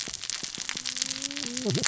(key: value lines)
label: biophony, cascading saw
recorder: SoundTrap 600 or HydroMoth